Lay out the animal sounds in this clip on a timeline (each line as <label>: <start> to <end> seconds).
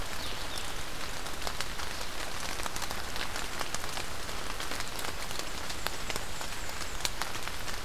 Blue-headed Vireo (Vireo solitarius): 0.0 to 7.8 seconds
Black-and-white Warbler (Mniotilta varia): 5.5 to 7.1 seconds